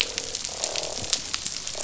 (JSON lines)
{"label": "biophony, croak", "recorder": "SoundTrap 500"}